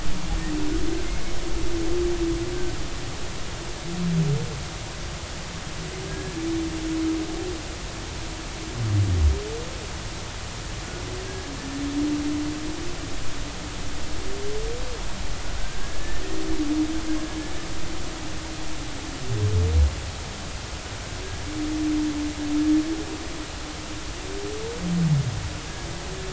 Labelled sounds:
6.1	6.4	humpback whale, 1.6 to 1.8 kHz
11.2	11.5	humpback whale, 1.6 to 1.7 kHz
15.6	16.2	humpback whale, 1.5 to 1.8 kHz

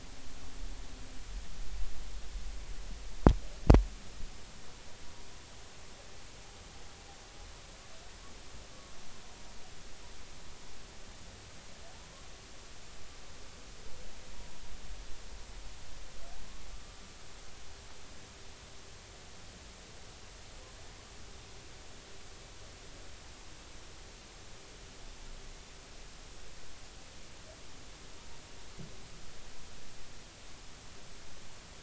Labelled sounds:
16.7	17.0	humpback whale, 1.15 to 1.25 kHz

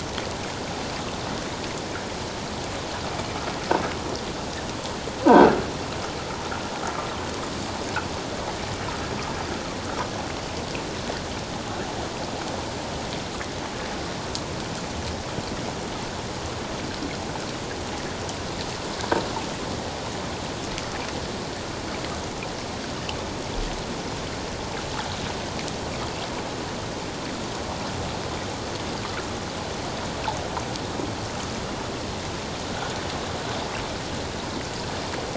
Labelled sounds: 5.2	5.5	croaking sound likely from a nearby submerged object, 1.4 to 1.6 kHz

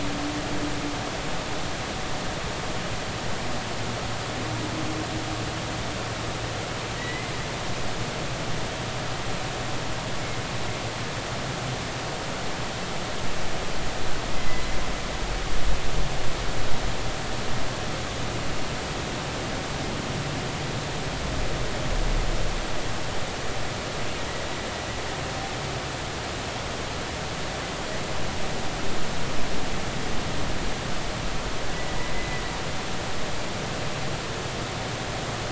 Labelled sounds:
7.0	7.3	humpback whale, 1.9 to 2.1 kHz
14.3	14.6	humpback whale, 2.0 to 2.1 kHz
32.0	32.4	humpback whale, 1.9 to 2.1 kHz

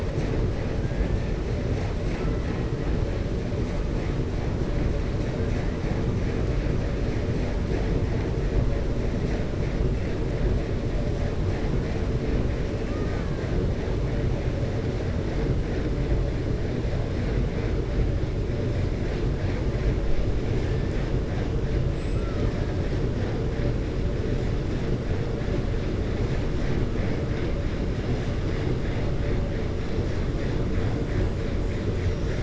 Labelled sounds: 12.8	13.5	killer whale, 0.80 to 2.7 kHz
22.1	22.5	killer whale, 0.59 to 1.8 kHz

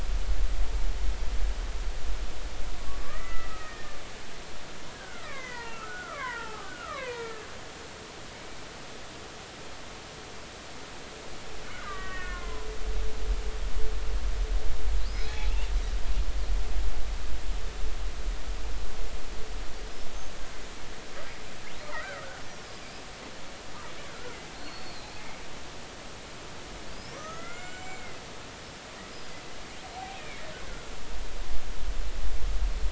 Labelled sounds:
3.0	4.0	killer whale, Bigg's (transient), 1.1 to 2.0 kHz
4.9	7.5	killer whale, Bigg's (transient), 0.80 to 4.5 kHz
11.8	12.7	killer whale, Bigg's (transient), 0.90 to 2.7 kHz
15.0	15.5	killer whale, Bigg's (transient), 0.80 to 5.2 kHz
20.1	20.6	killer whale, Bigg's (transient), 6.3 to 6.8 kHz
21.8	22.4	killer whale, Bigg's (transient), 1.2 to 1.6 kHz
24.5	25.1	killer whale, Bigg's (transient), 3.9 to 4.4 kHz
26.9	28.2	killer whale, Bigg's (transient), 1.1 to 7.4 kHz
29.9	30.9	killer whale, Bigg's (transient), 0.80 to 2.6 kHz

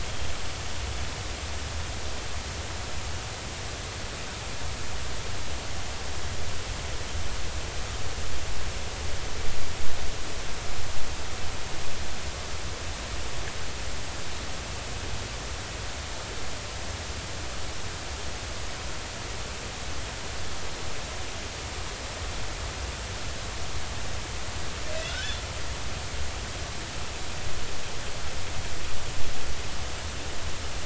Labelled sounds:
25.1	25.4	killer whale, northern resident, G clan, call N40, 1.4 to 1.8 kHz

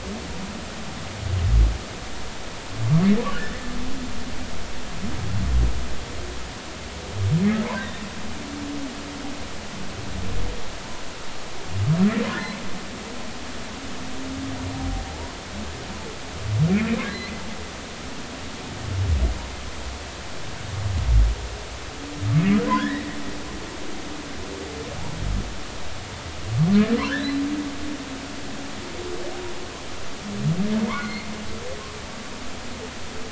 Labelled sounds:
3.3	3.7	humpback whale, 1.4 to 2.0 kHz
7.8	8.0	humpback whale, 3.6 to 3.9 kHz
14.7	15.0	humpback whale, 0.80 to 0.83 kHz
16.7	17.0	humpback whale, 2.1 to 2.6 kHz
22.8	23.1	humpback whale, 1.4 to 2.0 kHz
27.1	27.4	humpback whale, 3.4 to 4.3 kHz
30.9	31.3	humpback whale, 2.0 to 2.4 kHz

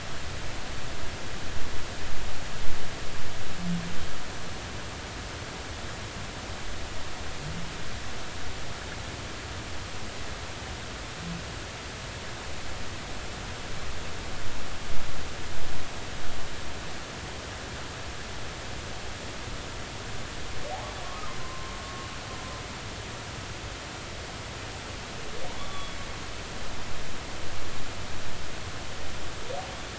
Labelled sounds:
21.4	21.7	humpback whale, 0.99 to 1.1 kHz
25.6	26.0	humpback whale, 0.99 to 3.5 kHz

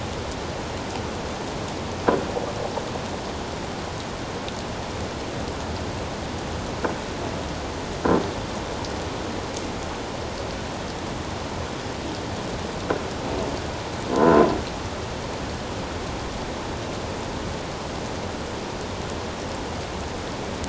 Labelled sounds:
14.1	14.5	croaking sound likely from a nearby submerged object, 0.97 to 1.1 kHz

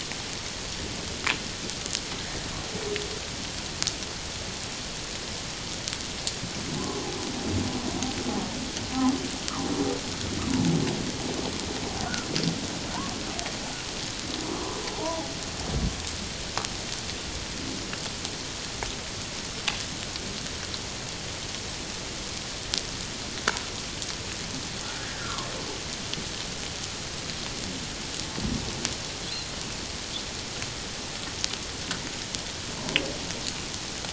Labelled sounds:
6.8	7.0	humpback whale, 0.97 to 1.2 kHz
15.0	15.3	humpback whale, 0.78 to 1.1 kHz
25.0	25.5	humpback whale, 0.88 to 1.8 kHz

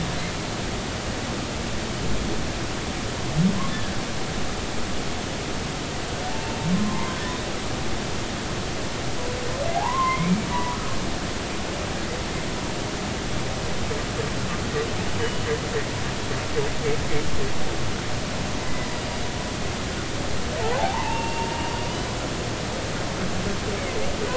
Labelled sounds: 3.7	4.0	humpback whale, 1.4 to 1.8 kHz
6.3	7.2	humpback whale, 0.83 to 1.1 kHz
9.7	10.8	humpback whale, 0.80 to 2.5 kHz
15.2	15.5	humpback whale, 2.9 to 3.0 kHz
18.6	18.9	humpback whale, 1.9 to 2.1 kHz
20.8	21.7	humpback whale, 0.80 to 2.9 kHz

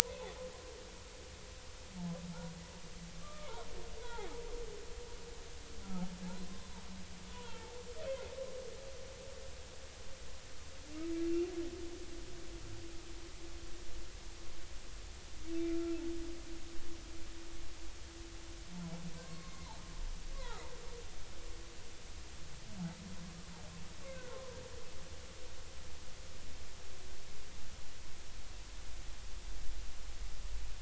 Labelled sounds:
3.2	3.6	humpback whale, 0.83 to 1.3 kHz
4.0	4.3	humpback whale, 0.80 to 3.5 kHz
6.5	6.7	humpback whale, 3.5 to 3.7 kHz
7.3	7.7	humpback whale, 0.80 to 1.0 kHz
8.1	8.3	humpback whale, 2.0 to 2.2 kHz
11.2	11.5	humpback whale, 2.7 to 2.8 kHz
15.6	16.0	humpback whale, 1.3 to 2.5 kHz
19.2	19.5	humpback whale, 0.99 to 1.1 kHz
24.1	24.6	humpback whale, 0.86 to 1.6 kHz

